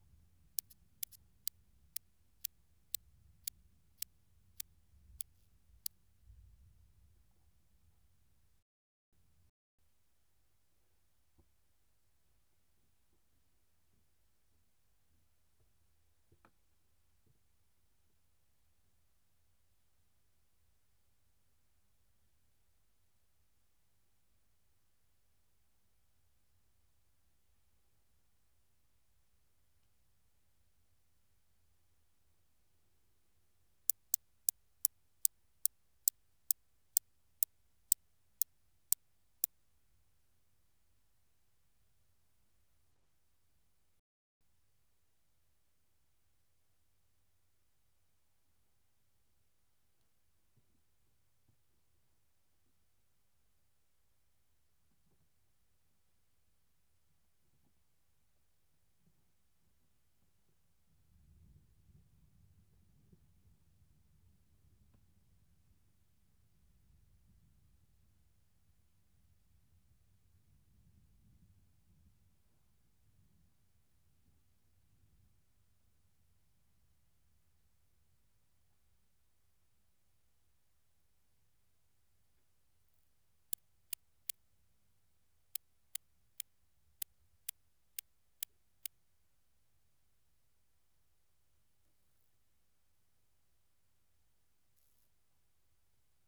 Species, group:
Stethophyma grossum
Orthoptera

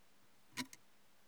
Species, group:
Incertana incerta
Orthoptera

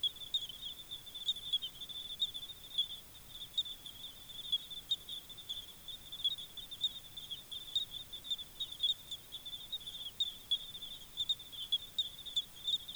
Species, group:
Eugryllodes pipiens
Orthoptera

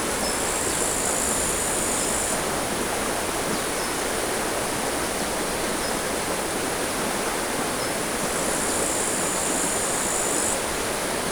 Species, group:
Tettigonia cantans
Orthoptera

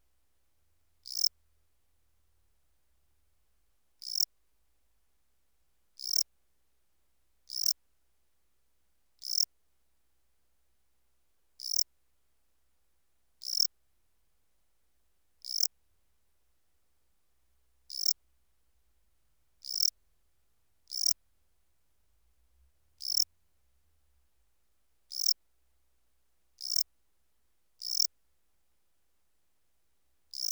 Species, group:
Melanogryllus desertus
Orthoptera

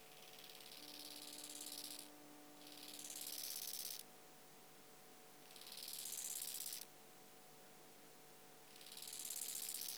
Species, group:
Chorthippus biguttulus
Orthoptera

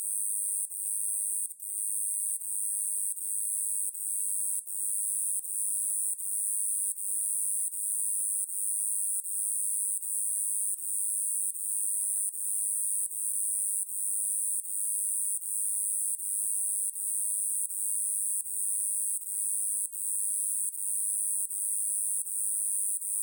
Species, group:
Neoconocephalus triops
Orthoptera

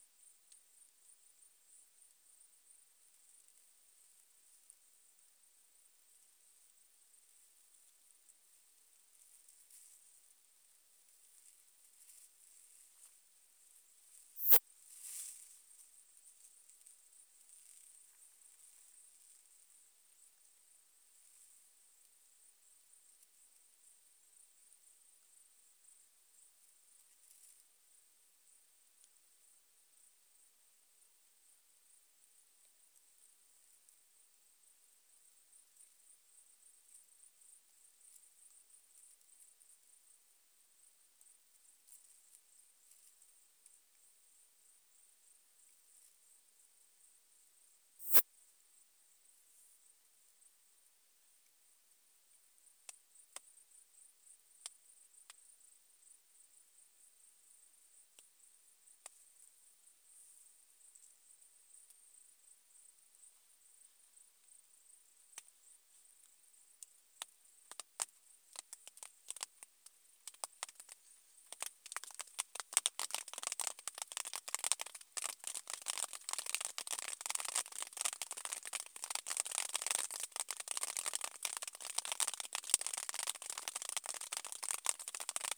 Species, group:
Poecilimon affinis
Orthoptera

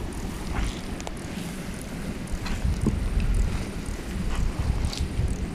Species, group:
Stauroderus scalaris
Orthoptera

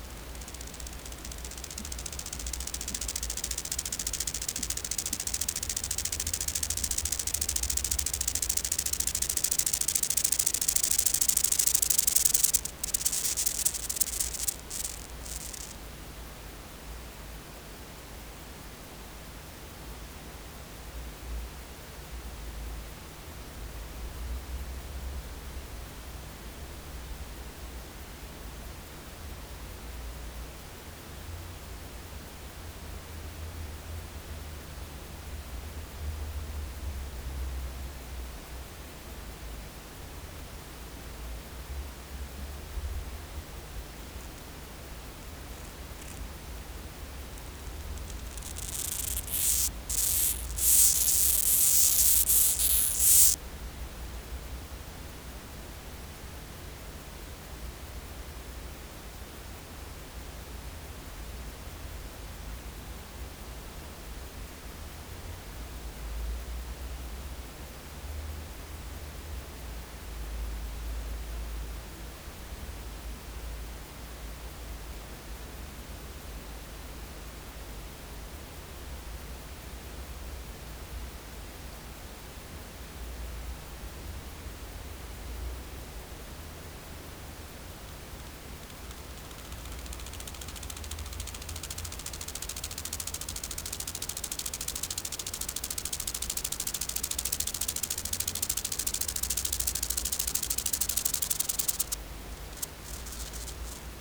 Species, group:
Chorthippus acroleucus
Orthoptera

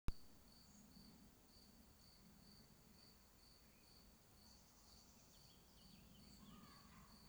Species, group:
Gryllus campestris
Orthoptera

